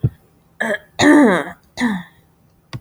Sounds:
Throat clearing